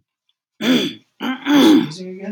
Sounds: Throat clearing